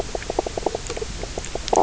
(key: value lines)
label: biophony, knock croak
recorder: SoundTrap 300